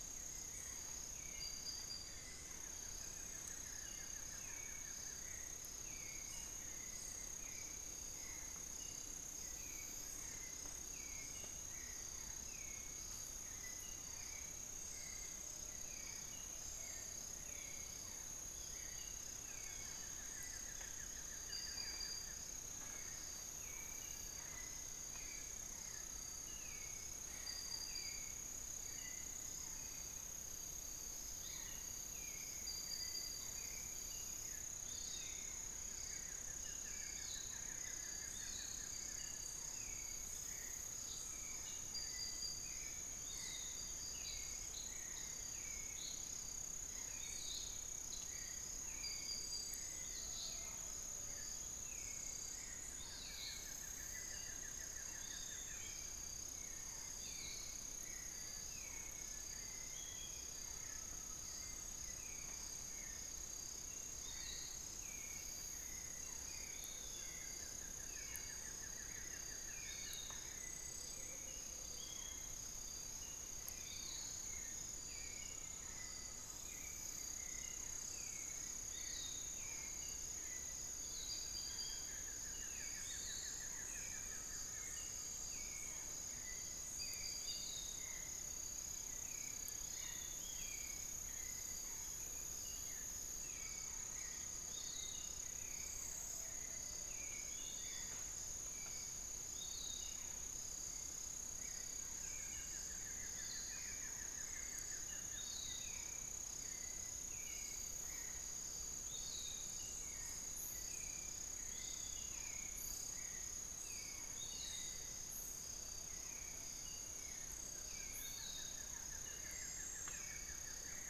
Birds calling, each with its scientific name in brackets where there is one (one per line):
Buff-throated Woodcreeper (Xiphorhynchus guttatus)
Piratic Flycatcher (Legatus leucophaius)
Amazonian Pygmy-Owl (Glaucidium hardyi)
unidentified bird
Little Tinamou (Crypturellus soui)
Hauxwell's Thrush (Turdus hauxwelli)
Spix's Guan (Penelope jacquacu)
Amazonian Motmot (Momotus momota)
Barred Forest-Falcon (Micrastur ruficollis)
Long-winged Antwren (Myrmotherula longipennis)